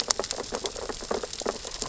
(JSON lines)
{"label": "biophony, sea urchins (Echinidae)", "recorder": "SoundTrap 600 or HydroMoth"}